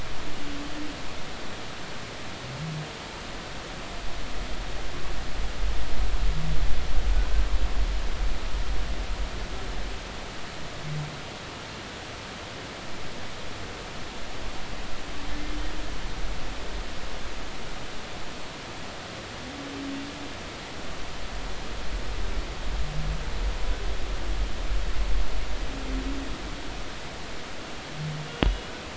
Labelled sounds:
28.3	28.7	humpback whale, 2.8 to 3.4 kHz

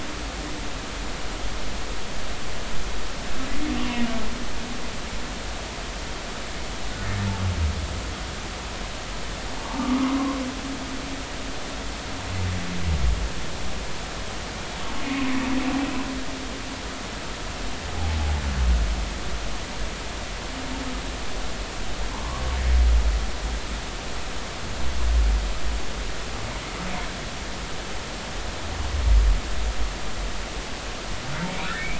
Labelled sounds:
9.6	10.4	humpback whale, 0.83 to 1.3 kHz
15.0	15.3	humpback whale, 2.4 to 2.6 kHz
22.1	22.4	humpback whale, 0.86 to 1.2 kHz
31.5	31.9	humpback whale, 1.2 to 2.7 kHz

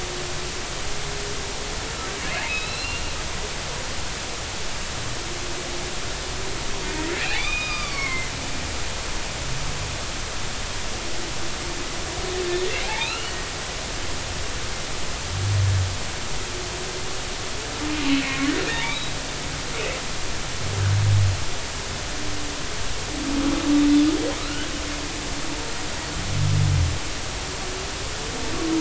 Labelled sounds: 2.5	3.1	humpback whale, 2.3 to 4.3 kHz
7.3	8.3	humpback whale, 0.96 to 4.9 kHz
12.8	13.4	humpback whale, 0.80 to 3.0 kHz
18.1	19.0	humpback whale, 0.86 to 2.6 kHz
24.4	24.7	humpback whale, 1.2 to 1.7 kHz

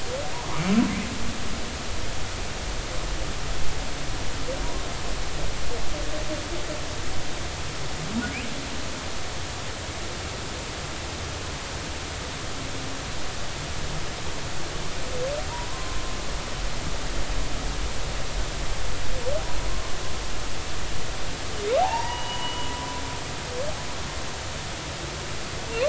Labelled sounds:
15.5	16.0	humpback whale, 0.90 to 1.1 kHz
21.8	22.7	humpback whale, 0.80 to 3.0 kHz

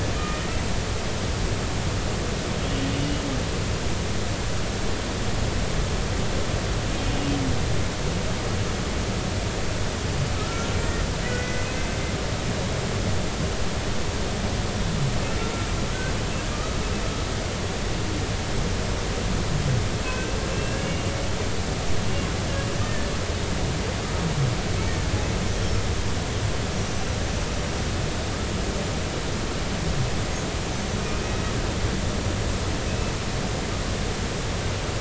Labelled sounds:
0.2	0.6	humpback whale, 1.2 to 2.5 kHz
10.4	11.7	humpback whale, 1.2 to 6.1 kHz
16.5	16.8	humpback whale, 1.2 to 1.3 kHz
20.1	21.1	humpback whale, 1.5 to 2.9 kHz
22.8	23.1	humpback whale, 1.7 to 1.9 kHz
25.5	25.8	humpback whale, 5.3 to 5.6 kHz
31.0	31.4	humpback whale, 2.4 to 2.6 kHz

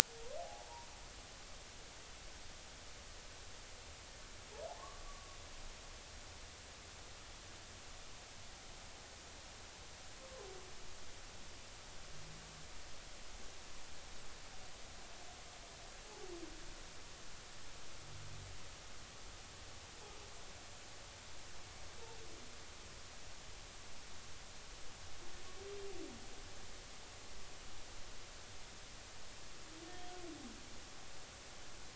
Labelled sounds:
0.4	0.7	humpback whale, 0.80 to 0.86 kHz
4.7	5.4	humpback whale, 0.80 to 1.2 kHz

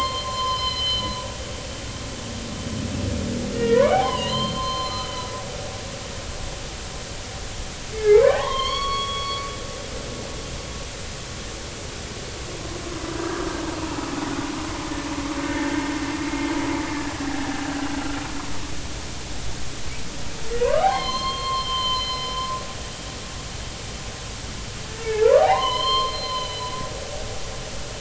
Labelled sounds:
3.5	5.3	humpback whale, 0.80 to 4.3 kHz
8.0	9.5	humpback whale, 0.80 to 4.5 kHz
13.2	13.6	humpback whale, 1.2 to 1.4 kHz
15.5	16.5	humpback whale, 1.7 to 2.2 kHz
17.2	17.6	humpback whale, 0.80 to 0.86 kHz
20.6	22.3	humpback whale, 0.93 to 4.3 kHz
23.0	23.2	humpback whale, 2.0 to 2.1 kHz
25.0	26.8	humpback whale, 0.80 to 5.3 kHz

